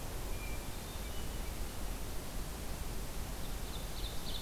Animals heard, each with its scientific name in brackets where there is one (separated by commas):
Ovenbird (Seiurus aurocapilla)